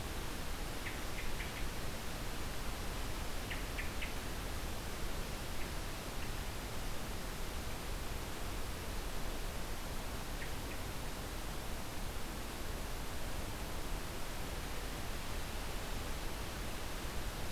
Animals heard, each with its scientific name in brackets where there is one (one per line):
Hermit Thrush (Catharus guttatus)